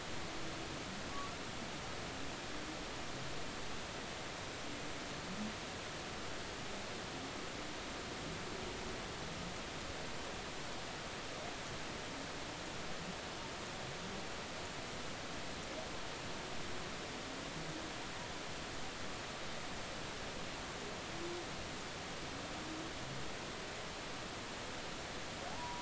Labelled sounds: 25.5	25.8	humpback whale, 0.80 to 1.0 kHz

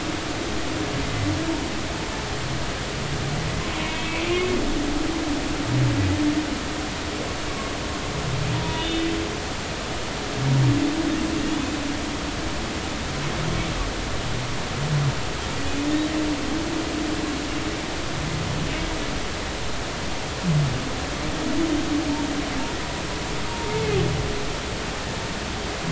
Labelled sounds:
3.7	4.5	humpback whale, 2.1 to 3.0 kHz
8.5	9.1	humpback whale, 0.90 to 3.6 kHz
11.5	11.8	humpback whale, 3.3 to 3.6 kHz
21.4	21.6	humpback whale, 6.1 to 6.5 kHz
23.5	23.8	humpback whale, 0.86 to 0.99 kHz

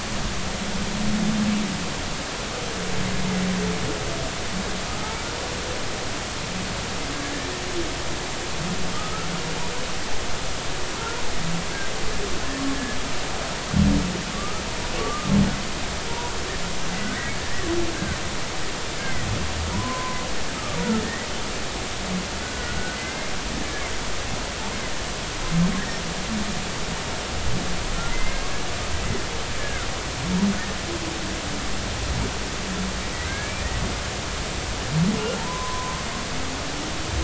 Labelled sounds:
8.9	9.3	humpback whale, 1.2 to 1.5 kHz
14.3	15.3	humpback whale, 1.1 to 1.3 kHz
16.1	16.3	humpback whale, 0.90 to 1.0 kHz
17.0	17.3	humpback whale, 1.4 to 1.7 kHz
19.0	19.3	humpback whale, 1.9 to 2.2 kHz
19.7	20.2	humpback whale, 0.93 to 1.1 kHz
22.4	23.3	humpback whale, 1.4 to 2.2 kHz
28.1	28.5	humpback whale, 2.0 to 2.2 kHz
29.6	29.9	humpback whale, 1.3 to 1.8 kHz
33.1	33.7	humpback whale, 1.5 to 2.5 kHz
35.4	36.0	humpback whale, 0.86 to 1.1 kHz

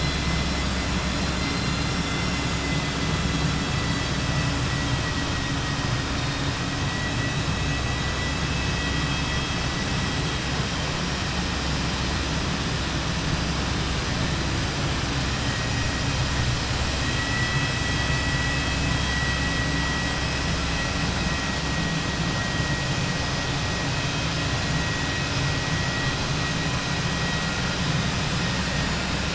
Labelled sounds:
1.8	2.6	vessel noise, 4.8 to 7.5 kHz

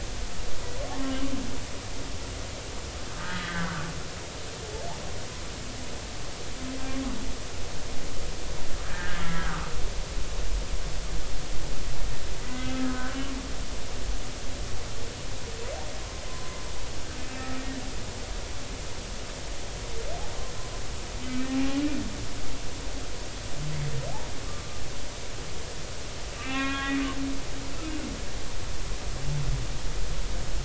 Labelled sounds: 2.0	3.8	humpback whale, 1.2 to 3.0 kHz
8.8	9.7	humpback whale, 1.1 to 1.8 kHz
12.4	13.2	humpback whale, 1.2 to 2.1 kHz
16.3	16.6	humpback whale, 0.99 to 1.1 kHz
21.5	21.8	humpback whale, 0.80 to 0.86 kHz
24.4	24.8	humpback whale, 1.1 to 1.2 kHz
26.4	27.0	humpback whale, 0.99 to 3.4 kHz

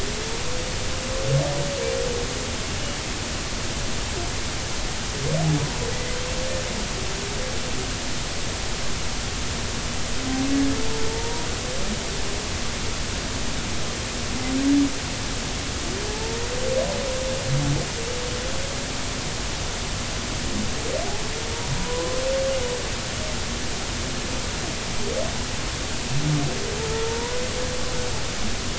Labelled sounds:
5.9	6.2	humpback whale, 1.9 to 2.1 kHz
12.1	12.5	humpback whale, 0.83 to 0.99 kHz
16.1	16.4	humpback whale, 0.80 to 0.93 kHz
21.8	22.2	humpback whale, 0.90 to 1.1 kHz
27.0	27.4	humpback whale, 0.90 to 1.1 kHz

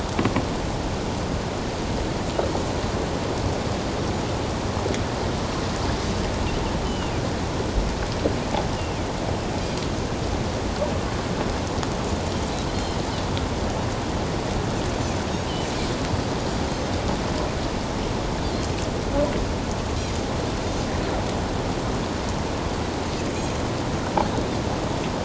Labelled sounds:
6.8	7.1	Pacific white-sided dolphin, 2.7 to 3.1 kHz
12.7	13.0	Pacific white-sided dolphin, 4.1 to 4.3 kHz

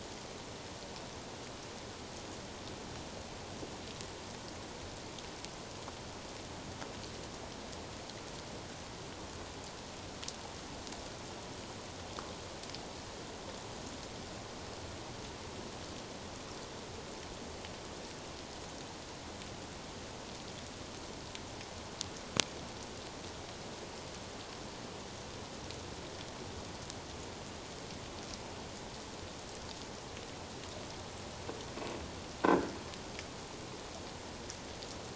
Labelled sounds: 32.4	32.7	croaking sound likely from a nearby submerged object, 1.4 to 1.7 kHz

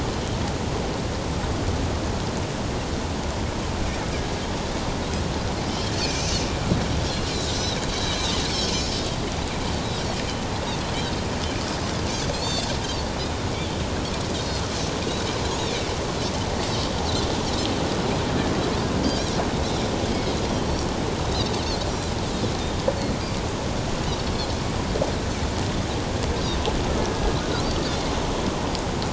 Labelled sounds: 6.0	6.4	Pacific white-sided dolphin, 2.3 to 6.3 kHz
12.3	12.7	Pacific white-sided dolphin, 3.4 to 4.6 kHz
19.0	19.3	Pacific white-sided dolphin, 3.1 to 3.4 kHz
21.3	21.5	Pacific white-sided dolphin, 3.6 to 4.2 kHz

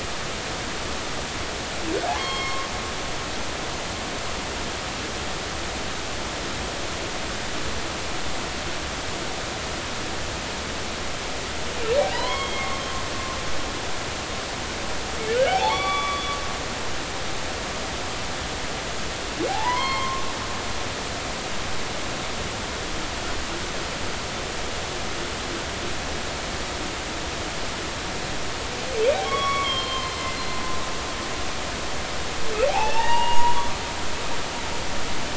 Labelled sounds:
2.2	2.7	humpback whale, 0.99 to 4.4 kHz
12.3	12.8	humpback whale, 1.0 to 3.3 kHz
13.1	13.8	humpback whale, 0.90 to 2.2 kHz
15.3	16.4	humpback whale, 0.80 to 4.6 kHz
19.5	20.2	humpback whale, 0.80 to 4.4 kHz
29.2	30.2	humpback whale, 0.96 to 3.4 kHz
32.7	33.6	humpback whale, 0.80 to 2.9 kHz

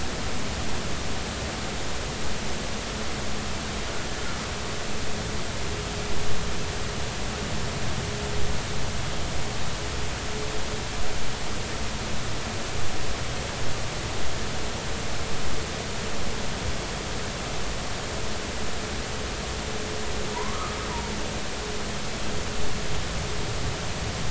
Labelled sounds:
20.3	20.8	humpback whale, 0.90 to 1.3 kHz

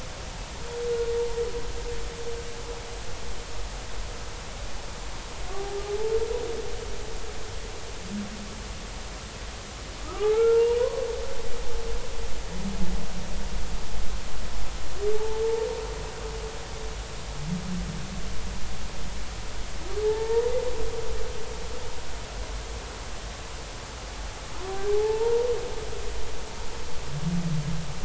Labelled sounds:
10.0	11.0	humpback whale, 0.80 to 2.9 kHz
15.1	15.4	humpback whale, 0.83 to 0.93 kHz
20.0	20.5	humpback whale, 0.83 to 1.9 kHz
24.9	25.5	humpback whale, 0.80 to 0.99 kHz

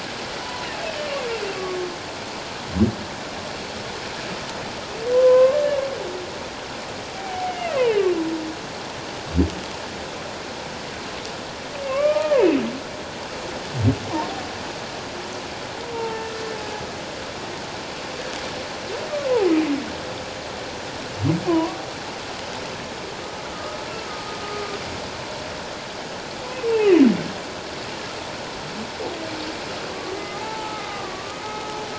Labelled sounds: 0.4	0.7	humpback whale, 0.88 to 1.0 kHz
5.1	5.6	humpback whale, 0.94 to 1.2 kHz
7.1	8.1	humpback whale, 0.78 to 3.0 kHz
11.8	12.6	humpback whale, 0.84 to 2.8 kHz
15.9	16.3	humpback whale, 0.84 to 1.4 kHz
21.5	21.8	humpback whale, 0.91 to 1.2 kHz
23.5	23.8	humpback whale, 1.2 to 1.3 kHz
30.2	31.8	humpback whale, 0.78 to 2.2 kHz

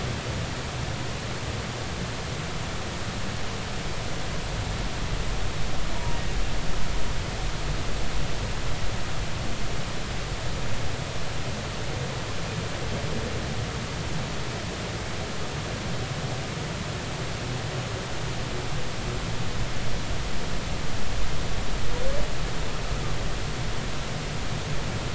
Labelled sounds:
5.9	6.2	humpback whale, 0.86 to 1.0 kHz

